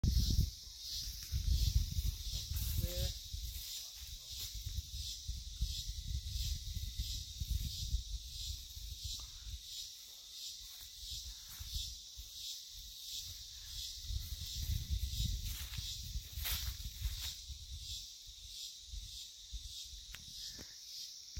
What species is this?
Psaltoda plaga